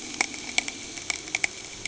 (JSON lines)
{"label": "anthrophony, boat engine", "recorder": "HydroMoth"}